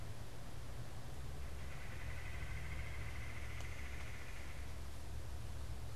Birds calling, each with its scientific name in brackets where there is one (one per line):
Red-bellied Woodpecker (Melanerpes carolinus)